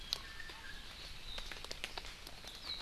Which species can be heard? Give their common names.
Iiwi